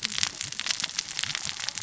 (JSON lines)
{"label": "biophony, cascading saw", "recorder": "SoundTrap 600 or HydroMoth"}